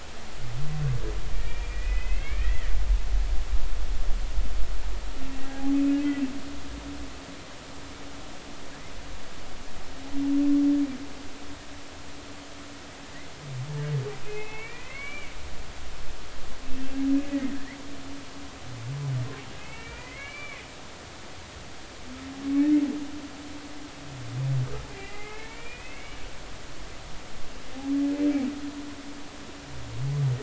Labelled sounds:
1.3	2.7	humpback whale, 1.6 to 2.9 kHz
5.4	5.7	humpback whale, 0.80 to 0.86 kHz
14.2	15.3	humpback whale, 1.1 to 3.0 kHz
17.2	17.8	humpback whale, 1.6 to 2.6 kHz
19.6	20.7	humpback whale, 1.1 to 2.9 kHz
24.9	26.2	humpback whale, 0.80 to 2.9 kHz

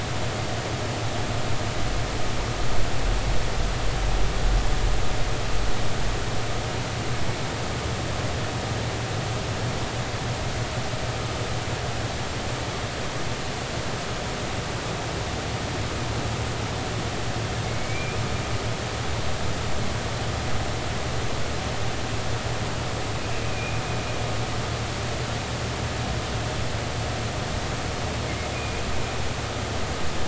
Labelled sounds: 17.6	18.2	humpback whale, 2.1 to 2.5 kHz
23.4	23.8	humpback whale, 2.3 to 2.6 kHz
28.5	28.8	humpback whale, 2.4 to 2.6 kHz

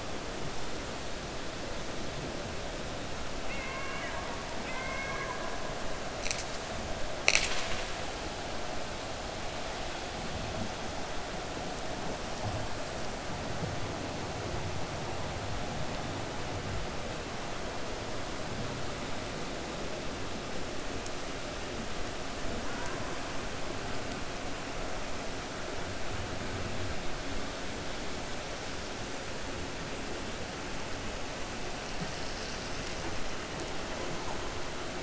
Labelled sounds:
3.4	5.5	killer whale, 0.89 to 3.0 kHz

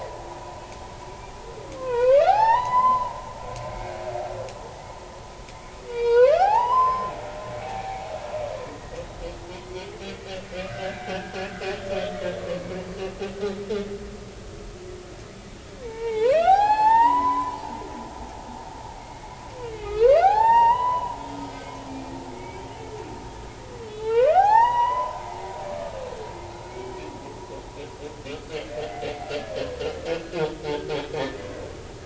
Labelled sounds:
1.8	3.2	humpback whale, 0.80 to 5.7 kHz
3.7	4.0	humpback whale, 2.0 to 2.5 kHz
5.9	7.1	humpback whale, 0.80 to 5.3 kHz
7.6	8.0	humpback whale, 0.80 to 0.93 kHz
8.7	9.0	humpback whale, 1.8 to 2.0 kHz
10.7	11.0	humpback whale, 1.4 to 2.1 kHz
15.8	17.6	humpback whale, 0.80 to 5.3 kHz
19.0	21.2	humpback whale, 0.80 to 5.8 kHz
21.5	21.8	humpback whale, 2.0 to 2.2 kHz
22.3	22.7	humpback whale, 2.1 to 2.4 kHz
23.9	25.2	humpback whale, 0.80 to 6.0 kHz
26.6	26.9	humpback whale, 2.1 to 2.3 kHz
30.1	30.4	humpback whale, 1.4 to 1.5 kHz

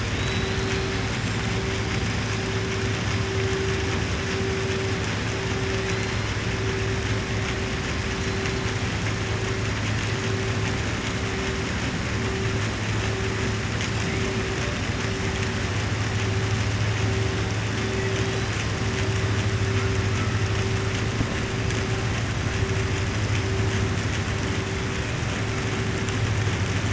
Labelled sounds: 0.1	0.9	killer whale, southern resident, 3.1 to 4.3 kHz

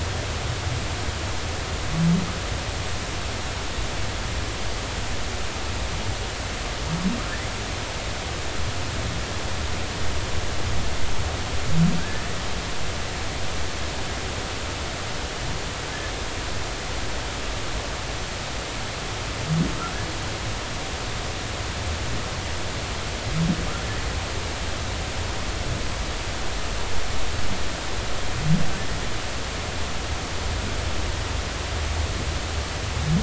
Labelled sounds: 11.9	12.3	humpback whale, 1.4 to 1.9 kHz

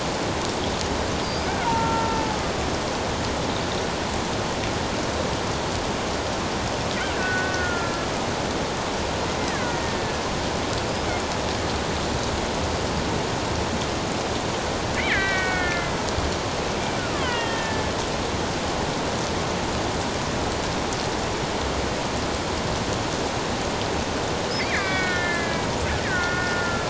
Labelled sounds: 1.2	2.2	killer whale, Bigg's (transient), 0.84 to 5.0 kHz
7.2	8.1	killer whale, Bigg's (transient), 1.3 to 1.9 kHz
9.4	10.2	killer whale, Bigg's (transient), 1.4 to 2.2 kHz
14.9	16.0	killer whale, Bigg's (transient), 1.3 to 3.2 kHz
17.1	17.8	killer whale, Bigg's (transient), 0.88 to 3.4 kHz
24.6	26.8	killer whale, Bigg's (transient), 1.3 to 5.0 kHz

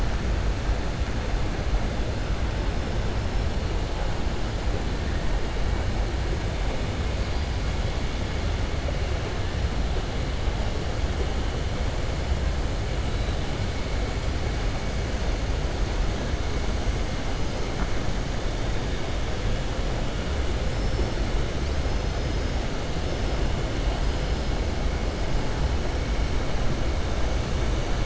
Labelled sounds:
20.7	21.1	killer whale, southern resident, 4.5 to 5.6 kHz

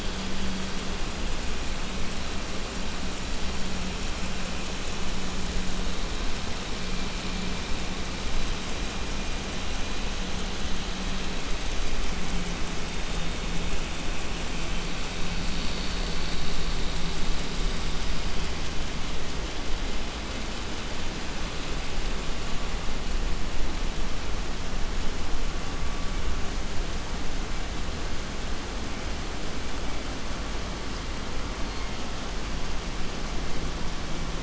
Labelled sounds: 31.3	32.3	killer whale, southern resident, 0.76 to 4.8 kHz

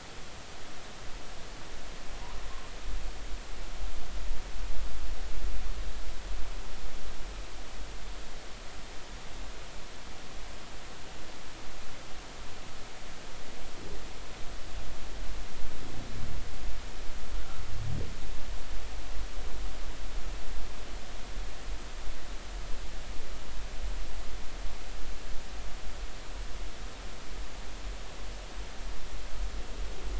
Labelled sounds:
17.4	17.6	humpback whale, 1.2 to 1.6 kHz

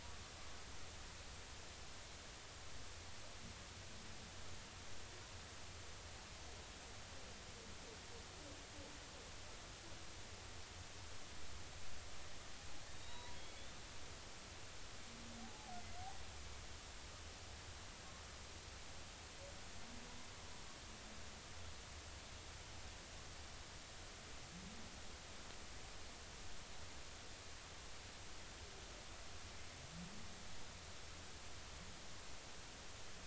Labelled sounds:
12.9	13.4	humpback whale, 0.90 to 4.0 kHz
15.4	15.7	humpback whale, 0.80 to 0.90 kHz

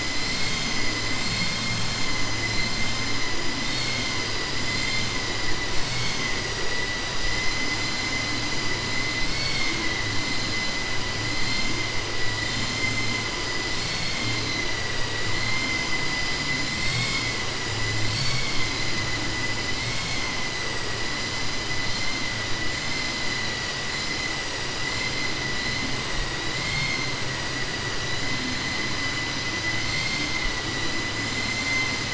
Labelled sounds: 1.2	1.6	vessel noise, 2.1 to 4.5 kHz
3.6	4.1	vessel noise, 1.5 to 5.4 kHz
4.6	5.1	vessel noise, 2.1 to 4.8 kHz
13.7	14.6	vessel noise, 2.1 to 4.5 kHz
26.5	27.0	vessel noise, 1.7 to 5.3 kHz

